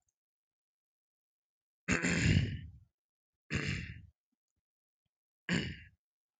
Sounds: Throat clearing